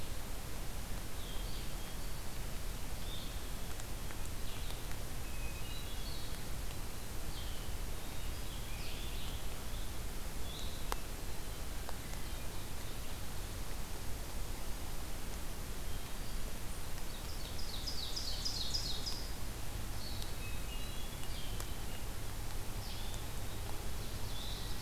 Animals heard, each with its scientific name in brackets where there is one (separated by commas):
Ovenbird (Seiurus aurocapilla), Blue-headed Vireo (Vireo solitarius), Hermit Thrush (Catharus guttatus)